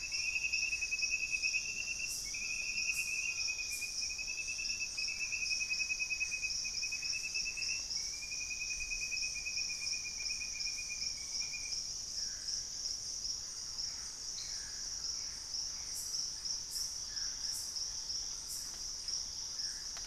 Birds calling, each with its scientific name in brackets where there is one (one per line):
Collared Trogon (Trogon collaris)
Mealy Parrot (Amazona farinosa)
Thrush-like Wren (Campylorhynchus turdinus)
Gray Antbird (Cercomacra cinerascens)
Plain-winged Antshrike (Thamnophilus schistaceus)
Purple-throated Fruitcrow (Querula purpurata)